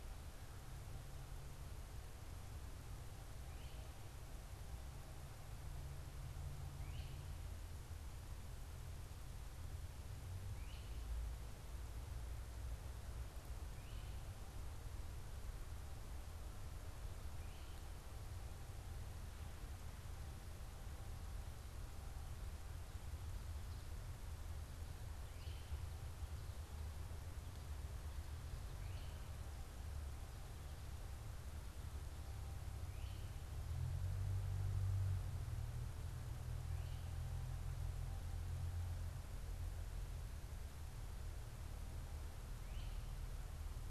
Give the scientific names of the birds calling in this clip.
Myiarchus crinitus